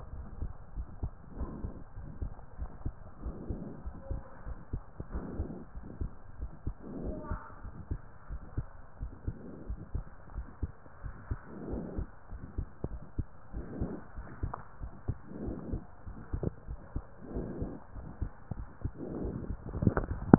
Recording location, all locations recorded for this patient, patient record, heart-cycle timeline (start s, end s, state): pulmonary valve (PV)
aortic valve (AV)+pulmonary valve (PV)+tricuspid valve (TV)+mitral valve (MV)
#Age: Child
#Sex: Male
#Height: 125.0 cm
#Weight: 36.1 kg
#Pregnancy status: False
#Murmur: Present
#Murmur locations: pulmonary valve (PV)+tricuspid valve (TV)
#Most audible location: pulmonary valve (PV)
#Systolic murmur timing: Early-systolic
#Systolic murmur shape: Plateau
#Systolic murmur grading: I/VI
#Systolic murmur pitch: Low
#Systolic murmur quality: Blowing
#Diastolic murmur timing: nan
#Diastolic murmur shape: nan
#Diastolic murmur grading: nan
#Diastolic murmur pitch: nan
#Diastolic murmur quality: nan
#Outcome: Abnormal
#Campaign: 2015 screening campaign
0.00	0.12	diastole
0.12	0.26	S1
0.26	0.40	systole
0.40	0.52	S2
0.52	0.76	diastole
0.76	0.88	S1
0.88	1.00	systole
1.00	1.12	S2
1.12	1.38	diastole
1.38	1.50	S1
1.50	1.60	systole
1.60	1.74	S2
1.74	1.98	diastole
1.98	2.10	S1
2.10	2.22	systole
2.22	2.36	S2
2.36	2.60	diastole
2.60	2.70	S1
2.70	2.82	systole
2.82	2.96	S2
2.96	3.22	diastole
3.22	3.36	S1
3.36	3.48	systole
3.48	3.62	S2
3.62	3.84	diastole
3.84	3.94	S1
3.94	4.08	systole
4.08	4.22	S2
4.22	4.46	diastole
4.46	4.58	S1
4.58	4.70	systole
4.70	4.84	S2
4.84	5.12	diastole
5.12	5.24	S1
5.24	5.36	systole
5.36	5.50	S2
5.50	5.72	diastole
5.72	5.84	S1
5.84	5.98	systole
5.98	6.12	S2
6.12	6.40	diastole
6.40	6.50	S1
6.50	6.64	systole
6.64	6.76	S2
6.76	7.02	diastole
7.02	7.16	S1
7.16	7.28	systole
7.28	7.40	S2
7.40	7.61	diastole
7.61	7.74	S1
7.74	7.88	systole
7.88	8.00	S2
8.00	8.26	diastole
8.26	8.40	S1
8.40	8.56	systole
8.56	8.68	S2
8.68	8.97	diastole
8.97	9.12	S1
9.12	9.24	systole
9.24	9.40	S2
9.40	9.68	diastole
9.68	9.78	S1
9.78	9.92	systole
9.92	10.06	S2
10.06	10.34	diastole
10.34	10.46	S1
10.46	10.58	systole
10.58	10.72	S2
10.72	11.01	diastole
11.01	11.14	S1
11.14	11.26	systole
11.26	11.40	S2
11.40	11.68	diastole
11.68	11.86	S1
11.86	11.96	systole
11.96	12.10	S2
12.10	12.28	diastole
12.28	12.43	S1
12.43	12.54	systole
12.54	12.68	S2
12.68	12.89	diastole
12.89	13.02	S1
13.02	13.14	systole
13.14	13.26	S2
13.26	13.49	diastole
13.49	13.68	S1
13.68	13.76	systole
13.76	13.92	S2
13.92	14.13	diastole
14.13	14.28	S1
14.28	14.41	systole
14.41	14.56	S2
14.56	14.73	diastole